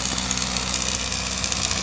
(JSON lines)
{"label": "anthrophony, boat engine", "recorder": "SoundTrap 500"}